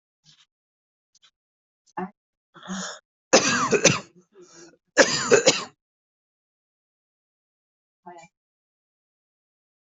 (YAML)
expert_labels:
- quality: good
  cough_type: wet
  dyspnea: false
  wheezing: false
  stridor: false
  choking: false
  congestion: false
  nothing: true
  diagnosis: upper respiratory tract infection
  severity: mild